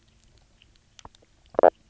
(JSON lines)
{"label": "biophony, knock croak", "recorder": "SoundTrap 300"}